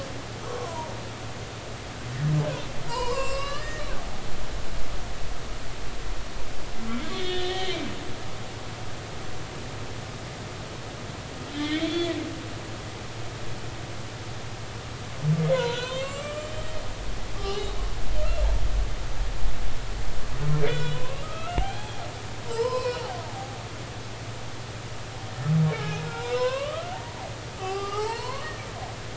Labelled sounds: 0.4	0.9	humpback whale, 0.90 to 1.2 kHz
2.9	3.9	humpback whale, 0.86 to 7.9 kHz
7.1	7.8	humpback whale, 1.8 to 4.4 kHz
11.5	12.1	humpback whale, 1.7 to 4.5 kHz
15.5	16.7	humpback whale, 0.90 to 7.6 kHz
17.4	17.7	humpback whale, 0.80 to 3.0 kHz
20.6	22.0	humpback whale, 0.80 to 4.0 kHz
22.5	23.6	humpback whale, 0.80 to 5.3 kHz
26.0	26.9	humpback whale, 0.96 to 5.3 kHz
27.6	29.0	humpback whale, 0.80 to 5.2 kHz

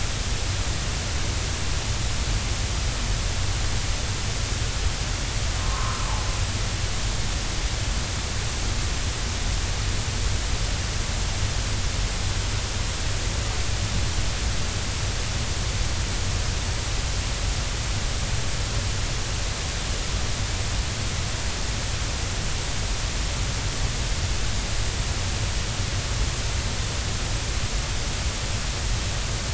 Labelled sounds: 5.6	6.0	humpback whale, 0.96 to 1.4 kHz

